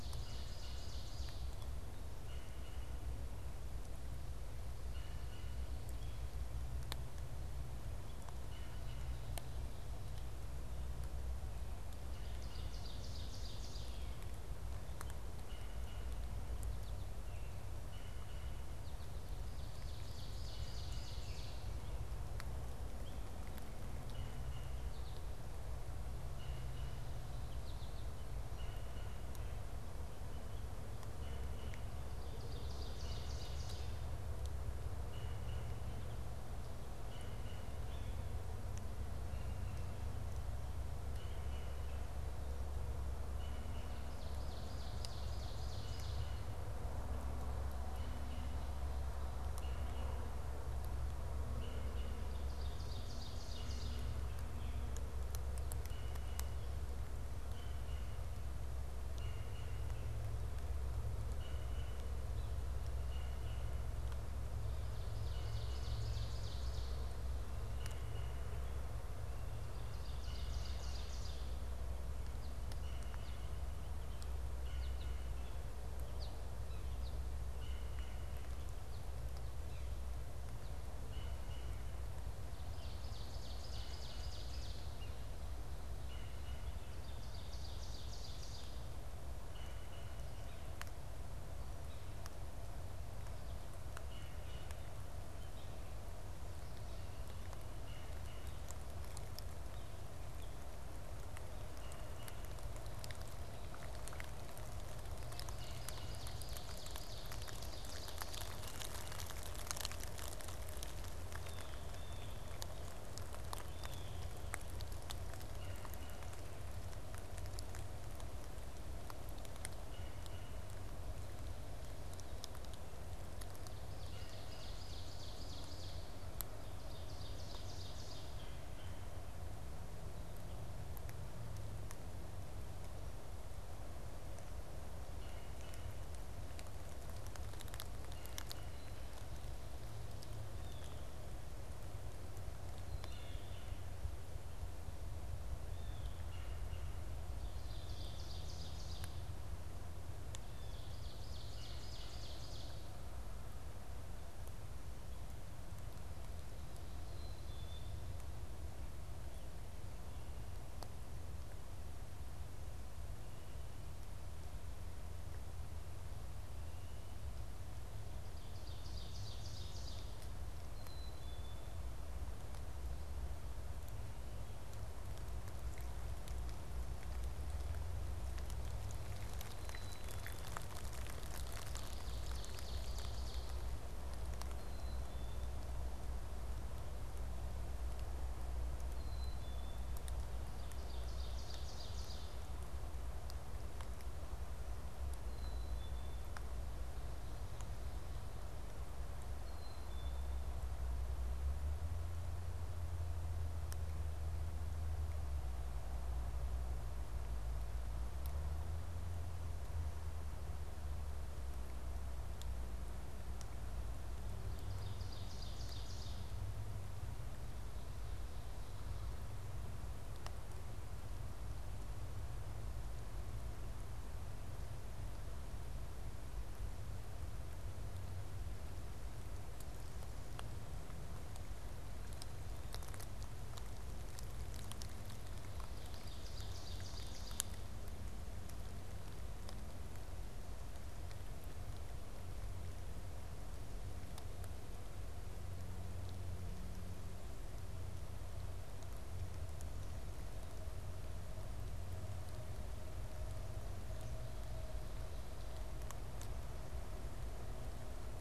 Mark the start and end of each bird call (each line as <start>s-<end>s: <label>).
0.0s-1.6s: Ovenbird (Seiurus aurocapilla)
0.0s-5.7s: Red-bellied Woodpecker (Melanerpes carolinus)
8.5s-9.3s: Red-bellied Woodpecker (Melanerpes carolinus)
12.1s-14.2s: Ovenbird (Seiurus aurocapilla)
15.3s-18.7s: Red-bellied Woodpecker (Melanerpes carolinus)
19.7s-21.9s: Ovenbird (Seiurus aurocapilla)
23.9s-29.6s: Red-bellied Woodpecker (Melanerpes carolinus)
24.8s-25.6s: American Goldfinch (Spinus tristis)
27.3s-28.2s: American Goldfinch (Spinus tristis)
31.2s-32.0s: Red-bellied Woodpecker (Melanerpes carolinus)
32.1s-34.1s: Ovenbird (Seiurus aurocapilla)
35.0s-44.1s: Red-bellied Woodpecker (Melanerpes carolinus)
44.0s-46.5s: Ovenbird (Seiurus aurocapilla)
47.7s-52.3s: Red-bellied Woodpecker (Melanerpes carolinus)
52.4s-54.3s: Ovenbird (Seiurus aurocapilla)
55.7s-60.2s: Red-bellied Woodpecker (Melanerpes carolinus)
61.2s-64.0s: Red-bellied Woodpecker (Melanerpes carolinus)
64.9s-67.1s: Ovenbird (Seiurus aurocapilla)
67.6s-68.4s: Red-bellied Woodpecker (Melanerpes carolinus)
69.5s-71.7s: Ovenbird (Seiurus aurocapilla)
72.7s-82.0s: Red-bellied Woodpecker (Melanerpes carolinus)
74.6s-77.4s: American Goldfinch (Spinus tristis)
82.4s-85.1s: Ovenbird (Seiurus aurocapilla)
86.0s-86.9s: Red-bellied Woodpecker (Melanerpes carolinus)
86.9s-89.1s: Ovenbird (Seiurus aurocapilla)
89.4s-90.5s: Red-bellied Woodpecker (Melanerpes carolinus)
94.0s-95.0s: Red-bellied Woodpecker (Melanerpes carolinus)
97.6s-98.6s: Red-bellied Woodpecker (Melanerpes carolinus)
101.7s-102.7s: Red-bellied Woodpecker (Melanerpes carolinus)
105.3s-108.8s: Ovenbird (Seiurus aurocapilla)
111.2s-114.4s: Blue Jay (Cyanocitta cristata)
115.5s-120.8s: Red-bellied Woodpecker (Melanerpes carolinus)
123.9s-126.3s: Ovenbird (Seiurus aurocapilla)
126.6s-128.7s: Ovenbird (Seiurus aurocapilla)
128.1s-129.1s: Red-bellied Woodpecker (Melanerpes carolinus)
135.2s-136.0s: Red-bellied Woodpecker (Melanerpes carolinus)
140.5s-141.0s: Blue Jay (Cyanocitta cristata)
142.6s-143.9s: Black-capped Chickadee (Poecile atricapillus)
143.0s-144.0s: Red-bellied Woodpecker (Melanerpes carolinus)
145.6s-146.3s: Blue Jay (Cyanocitta cristata)
146.2s-147.0s: Red-bellied Woodpecker (Melanerpes carolinus)
147.4s-149.3s: Ovenbird (Seiurus aurocapilla)
150.6s-153.0s: Ovenbird (Seiurus aurocapilla)
157.1s-158.1s: Black-capped Chickadee (Poecile atricapillus)
168.1s-170.3s: Ovenbird (Seiurus aurocapilla)
170.7s-171.7s: Black-capped Chickadee (Poecile atricapillus)
179.4s-180.7s: Black-capped Chickadee (Poecile atricapillus)
181.5s-183.7s: Ovenbird (Seiurus aurocapilla)
184.5s-185.6s: Black-capped Chickadee (Poecile atricapillus)
188.8s-190.1s: Black-capped Chickadee (Poecile atricapillus)
190.4s-192.5s: Ovenbird (Seiurus aurocapilla)
195.2s-196.4s: Black-capped Chickadee (Poecile atricapillus)
199.0s-200.6s: Black-capped Chickadee (Poecile atricapillus)
214.5s-216.4s: Ovenbird (Seiurus aurocapilla)
235.5s-237.7s: Ovenbird (Seiurus aurocapilla)